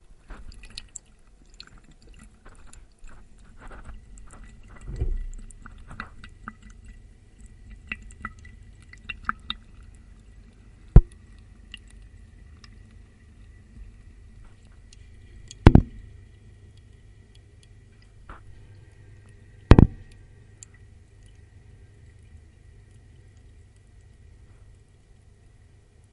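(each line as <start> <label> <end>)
0.0 A delicate stream of water flows from a tap. 26.1
10.9 A soft thump is heard. 11.2
15.5 A loud thump is heard. 16.2
19.6 A loud thump is heard. 20.1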